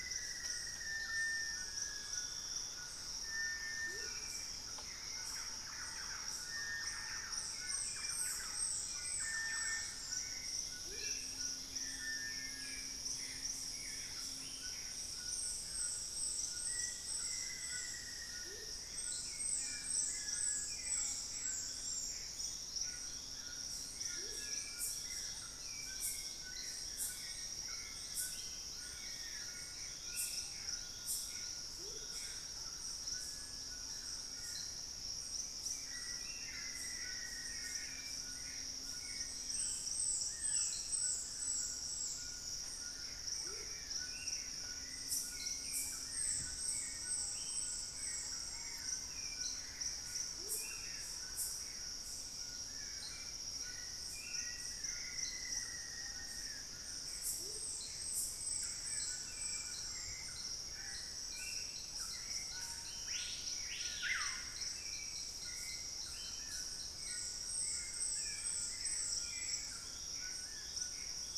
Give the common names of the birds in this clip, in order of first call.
Black-faced Antthrush, Cinereous Tinamou, Hauxwell's Thrush, White-throated Toucan, Thrush-like Wren, Amazonian Motmot, Gray Antbird, Screaming Piha, unidentified bird, Black-billed Thrush